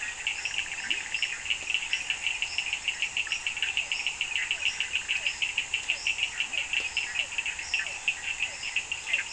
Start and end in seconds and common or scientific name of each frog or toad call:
0.0	1.5	Leptodactylus latrans
0.0	1.7	Bischoff's tree frog
4.5	9.3	Physalaemus cuvieri